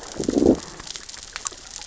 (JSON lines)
{"label": "biophony, growl", "recorder": "SoundTrap 600 or HydroMoth"}